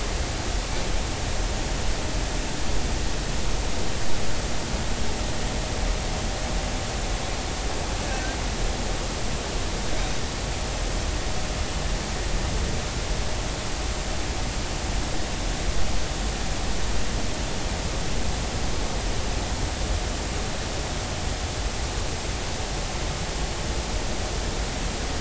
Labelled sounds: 8.0	8.4	humpback whale, 1.5 to 1.7 kHz

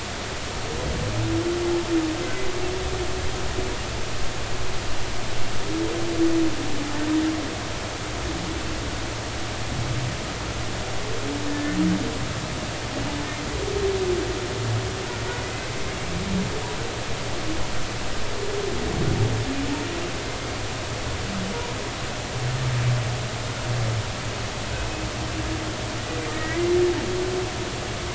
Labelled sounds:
11.5	11.8	humpback whale, 1.7 to 1.9 kHz
26.3	26.7	humpback whale, 1.8 to 2.1 kHz

